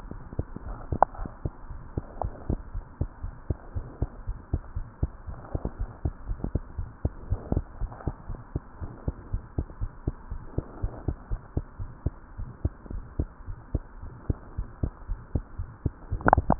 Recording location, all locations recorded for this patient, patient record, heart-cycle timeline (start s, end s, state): tricuspid valve (TV)
aortic valve (AV)+pulmonary valve (PV)+tricuspid valve (TV)+mitral valve (MV)
#Age: Child
#Sex: Male
#Height: 76.0 cm
#Weight: 9.4 kg
#Pregnancy status: False
#Murmur: Present
#Murmur locations: mitral valve (MV)+tricuspid valve (TV)
#Most audible location: tricuspid valve (TV)
#Systolic murmur timing: Early-systolic
#Systolic murmur shape: Decrescendo
#Systolic murmur grading: I/VI
#Systolic murmur pitch: Low
#Systolic murmur quality: Blowing
#Diastolic murmur timing: nan
#Diastolic murmur shape: nan
#Diastolic murmur grading: nan
#Diastolic murmur pitch: nan
#Diastolic murmur quality: nan
#Outcome: Abnormal
#Campaign: 2015 screening campaign
0.00	2.96	unannotated
2.96	3.08	S2
3.08	3.22	diastole
3.22	3.34	S1
3.34	3.46	systole
3.46	3.58	S2
3.58	3.74	diastole
3.74	3.88	S1
3.88	3.98	systole
3.98	4.10	S2
4.10	4.26	diastole
4.26	4.40	S1
4.40	4.50	systole
4.50	4.64	S2
4.64	4.76	diastole
4.76	4.88	S1
4.88	5.02	systole
5.02	5.14	S2
5.14	5.28	diastole
5.28	5.38	S1
5.38	5.50	systole
5.50	5.62	S2
5.62	5.78	diastole
5.78	5.90	S1
5.90	6.04	systole
6.04	6.16	S2
6.16	6.28	diastole
6.28	6.42	S1
6.42	6.52	systole
6.52	6.62	S2
6.62	6.76	diastole
6.76	6.90	S1
6.90	7.00	systole
7.00	7.12	S2
7.12	7.26	diastole
7.26	7.40	S1
7.40	7.50	systole
7.50	7.66	S2
7.66	7.80	diastole
7.80	7.92	S1
7.92	8.06	systole
8.06	8.16	S2
8.16	8.30	diastole
8.30	8.40	S1
8.40	8.54	systole
8.54	8.64	S2
8.64	8.82	diastole
8.82	8.94	S1
8.94	9.06	systole
9.06	9.16	S2
9.16	9.32	diastole
9.32	9.42	S1
9.42	9.54	systole
9.54	9.66	S2
9.66	9.80	diastole
9.80	9.90	S1
9.90	10.06	systole
10.06	10.16	S2
10.16	10.30	diastole
10.30	10.44	S1
10.44	10.56	systole
10.56	10.66	S2
10.66	10.82	diastole
10.82	10.92	S1
10.92	11.06	systole
11.06	11.16	S2
11.16	11.30	diastole
11.30	11.40	S1
11.40	11.52	systole
11.52	11.66	S2
11.66	11.80	diastole
11.80	11.92	S1
11.92	12.02	systole
12.02	12.16	S2
12.16	12.36	diastole
12.36	12.50	S1
12.50	12.60	systole
12.60	12.74	S2
12.74	12.90	diastole
12.90	13.04	S1
13.04	13.14	systole
13.14	13.30	S2
13.30	13.48	diastole
13.48	13.56	S1
13.56	13.70	systole
13.70	13.84	S2
13.84	14.00	diastole
14.00	14.12	S1
14.12	14.26	systole
14.26	14.42	S2
14.42	14.58	diastole
14.58	14.68	S1
14.68	14.78	systole
14.78	14.94	S2
14.94	15.10	diastole
15.10	15.20	S1
15.20	15.30	systole
15.30	15.42	S2
15.42	15.58	diastole
15.58	15.72	S1
15.72	15.82	systole
15.82	15.96	S2
15.96	16.10	diastole
16.10	16.22	S1
16.22	16.59	unannotated